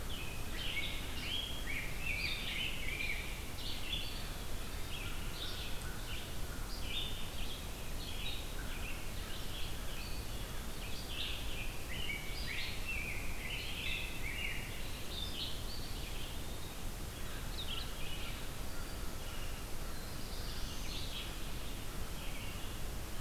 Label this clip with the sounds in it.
Rose-breasted Grosbeak, Red-eyed Vireo, Eastern Wood-Pewee, American Crow, Black-throated Blue Warbler